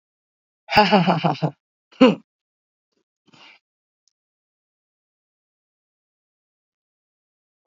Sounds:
Laughter